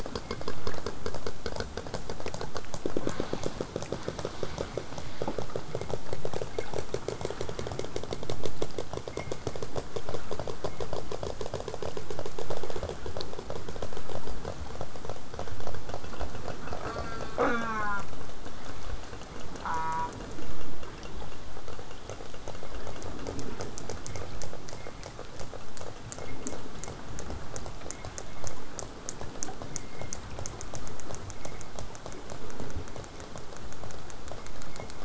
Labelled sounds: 16.8	18.0	killer whale, southern resident, J pod, call S04, 0.09 to 8.0 kHz
19.6	20.1	killer whale, southern resident, J pod, call S04, 0.75 to 4.0 kHz

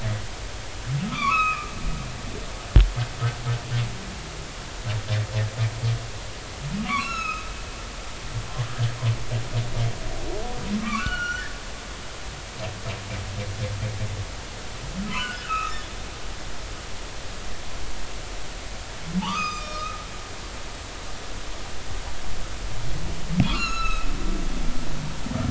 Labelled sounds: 1.1	1.7	humpback whale, 0.96 to 3.6 kHz
6.8	8.5	humpback whale, 0.96 to 6.8 kHz
10.8	11.5	humpback whale, 1.0 to 6.0 kHz
15.1	15.9	humpback whale, 0.96 to 3.7 kHz
19.2	20.0	humpback whale, 0.80 to 6.6 kHz
23.4	24.1	humpback whale, 0.90 to 6.9 kHz

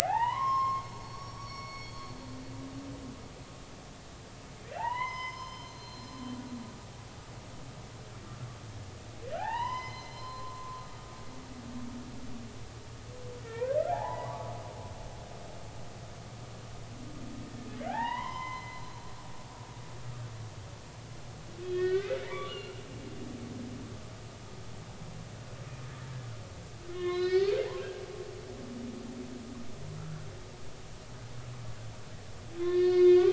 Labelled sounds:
0.0	2.1	humpback whale, 0.80 to 5.7 kHz
4.7	6.2	humpback whale, 0.80 to 6.3 kHz
9.3	10.8	humpback whale, 0.80 to 6.2 kHz
13.4	14.5	humpback whale, 0.80 to 2.0 kHz
17.9	19.7	humpback whale, 0.80 to 5.2 kHz
21.6	22.9	humpback whale, 0.90 to 4.3 kHz
26.9	27.6	humpback whale, 0.99 to 6.4 kHz
32.6	33.3	humpback whale, 0.99 to 4.1 kHz

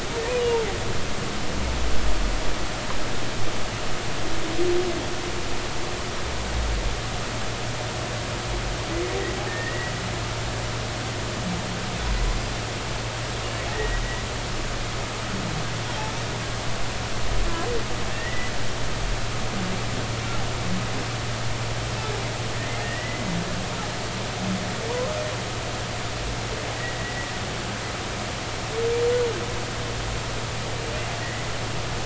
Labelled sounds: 9.5	9.9	humpback whale, 1.8 to 2.0 kHz
13.7	14.0	humpback whale, 1.8 to 2.0 kHz
18.1	18.5	humpback whale, 1.7 to 2.0 kHz
22.8	23.2	humpback whale, 1.8 to 2.1 kHz
26.7	27.3	humpback whale, 1.9 to 2.0 kHz
31.2	31.5	humpback whale, 1.8 to 2.0 kHz

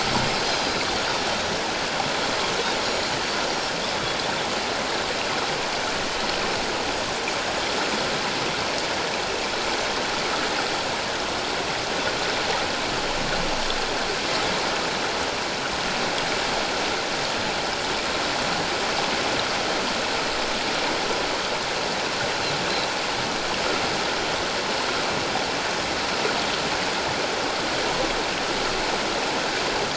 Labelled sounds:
0.5	0.8	Pacific white-sided dolphin, 4.8 to 5.1 kHz
2.8	3.1	Pacific white-sided dolphin, 6.8 to 7.0 kHz

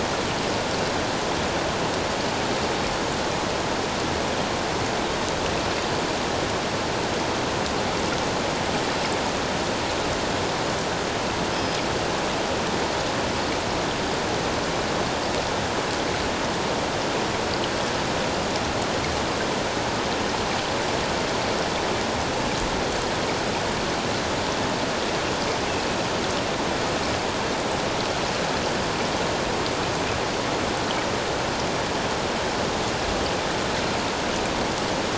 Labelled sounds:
11.5	11.8	Pacific white-sided dolphin, 5.0 to 5.2 kHz

